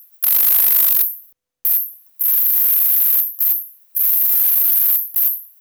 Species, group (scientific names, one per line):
Tettigonia longispina
Orthoptera